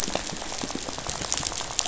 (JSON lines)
{"label": "biophony, rattle", "recorder": "SoundTrap 500"}